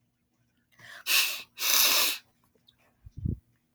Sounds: Sniff